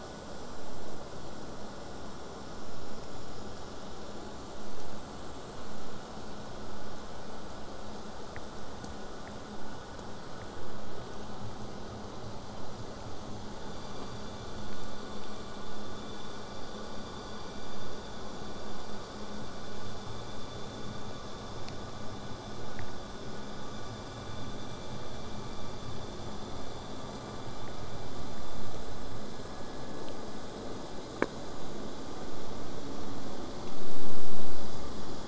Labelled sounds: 24.5	25.5	vessel noise, 0.12 to 8.0 kHz

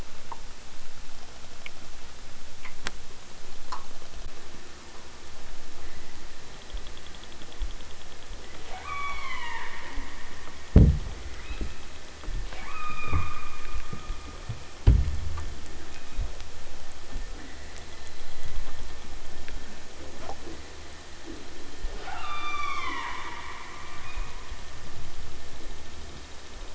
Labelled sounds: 8.6	9.8	killer whale, southern Alaska resident, 0.46 to 8.0 kHz
11.2	11.8	killer whale, southern Alaska resident, 0.88 to 4.4 kHz
12.4	13.3	killer whale, southern Alaska resident, 0.37 to 5.7 kHz
15.9	16.4	killer whale, southern Alaska resident, 1.1 to 4.1 kHz
17.2	17.9	killer whale, southern Alaska resident, 0.28 to 2.3 kHz
19.8	20.7	killer whale, southern Alaska resident, 0 to 1.0 kHz
21.2	23.2	killer whale, southern Alaska resident, 0 to 8.0 kHz

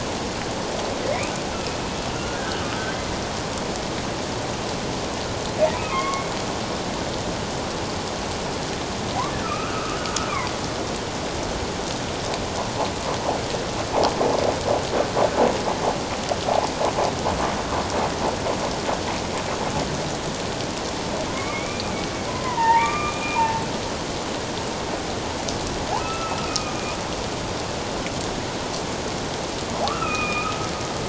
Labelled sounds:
1.5	2.9	humpback whale, 1.2 to 2.9 kHz
5.9	6.3	humpback whale, 1.0 to 3.3 kHz
9.4	10.0	humpback whale, 1.1 to 2.8 kHz
21.3	21.9	humpback whale, 0.97 to 2.5 kHz
22.3	23.6	humpback whale, 0.81 to 2.5 kHz
26.0	26.8	humpback whale, 1.2 to 2.7 kHz
29.9	30.6	humpback whale, 1.1 to 3.8 kHz

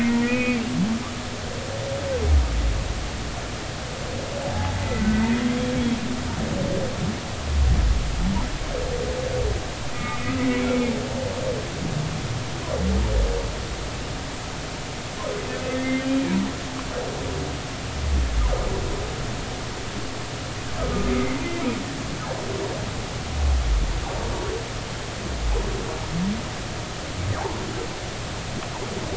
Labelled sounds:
0.2	0.6	humpback whale, 1.9 to 2.6 kHz
4.8	5.7	humpback whale, 1.9 to 3.4 kHz
9.9	10.4	humpback whale, 1.2 to 2.6 kHz
11.4	11.7	humpback whale, 2.0 to 2.4 kHz
15.7	16.3	humpback whale, 1.8 to 2.5 kHz
20.8	21.4	humpback whale, 1.2 to 2.2 kHz

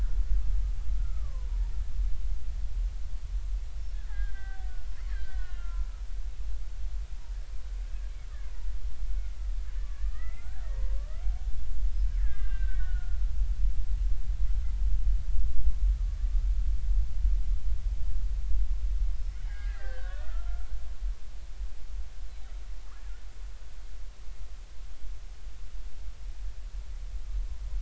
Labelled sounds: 1.0	1.6	killer whale, Bigg's (transient), 0.90 to 1.5 kHz
4.1	4.7	killer whale, Bigg's (transient), 0.80 to 2.0 kHz
5.1	5.9	killer whale, Bigg's (transient), 1.3 to 4.2 kHz
9.2	9.5	killer whale, Bigg's (transient), 2.0 to 2.3 kHz
9.8	11.2	killer whale, Bigg's (transient), 1.1 to 2.2 kHz
12.2	13.2	killer whale, Bigg's (transient), 1.2 to 3.7 kHz
19.3	20.7	killer whale, Bigg's (transient), 1.1 to 3.9 kHz

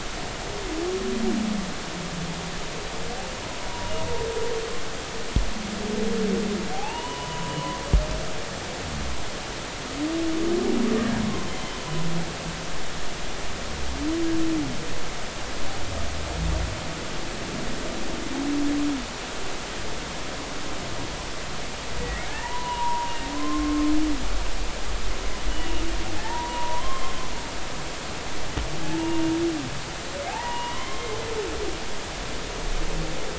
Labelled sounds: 6.7	7.5	humpback whale, 0.80 to 3.0 kHz
11.5	11.9	humpback whale, 3.0 to 3.2 kHz
22.0	23.1	humpback whale, 0.83 to 2.0 kHz
23.4	23.9	humpback whale, 0.99 to 1.1 kHz
26.2	27.1	humpback whale, 0.83 to 3.2 kHz
28.8	29.2	humpback whale, 0.83 to 0.99 kHz
30.3	31.2	humpback whale, 0.80 to 3.2 kHz

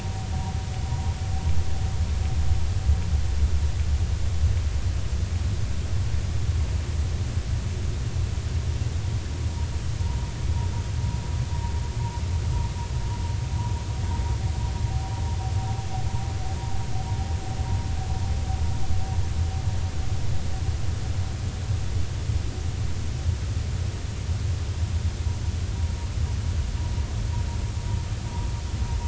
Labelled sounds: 10.0	10.3	vessel noise, 0.86 to 0.99 kHz

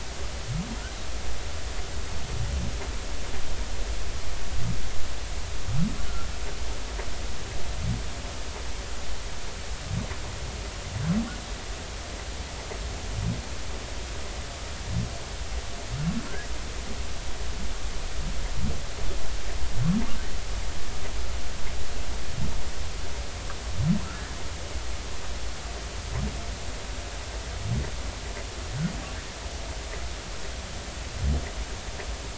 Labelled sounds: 24.0	24.3	humpback whale, 1.3 to 1.5 kHz

